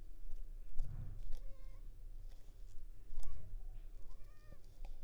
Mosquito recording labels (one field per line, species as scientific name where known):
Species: Anopheles arabiensis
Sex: female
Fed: unfed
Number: one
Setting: cup